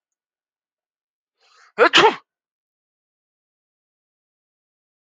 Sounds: Sneeze